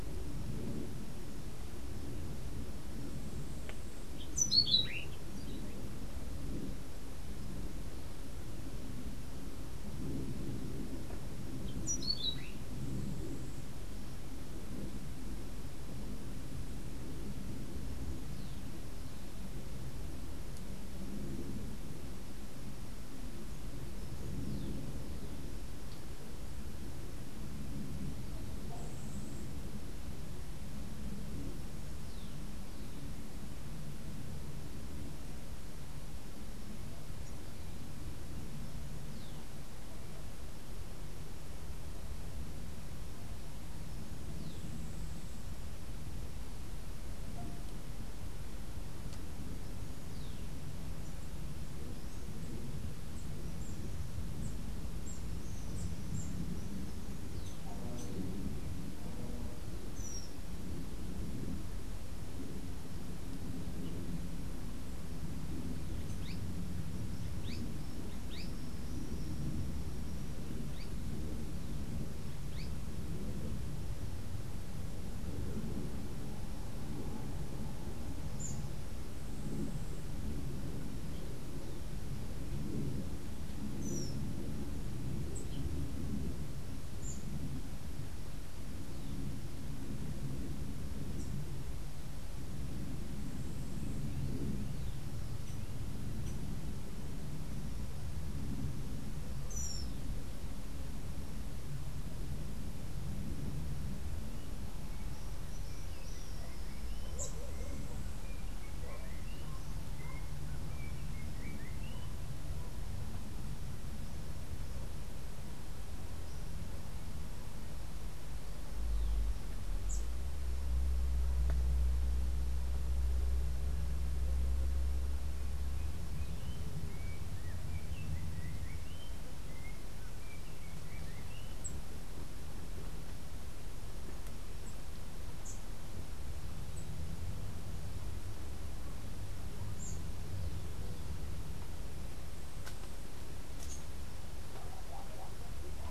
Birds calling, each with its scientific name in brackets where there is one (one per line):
unidentified bird
Azara's Spinetail (Synallaxis azarae)
Orange-billed Nightingale-Thrush (Catharus aurantiirostris)
Yellow-backed Oriole (Icterus chrysater)